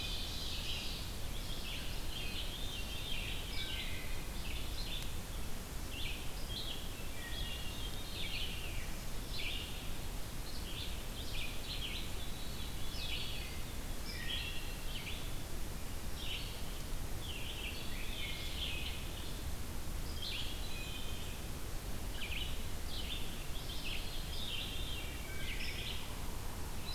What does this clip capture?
Ovenbird, Red-eyed Vireo, Veery, Wood Thrush